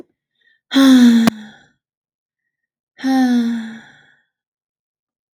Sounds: Sigh